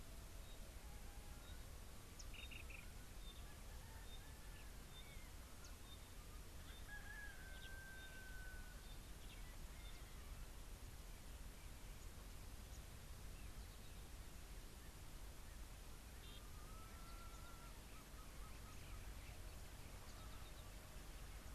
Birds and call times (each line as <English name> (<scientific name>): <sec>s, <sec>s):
Black-throated Barbet (Tricholaema melanocephala): 2.5s
Pygmy Batis (Batis perkeo): 3.2s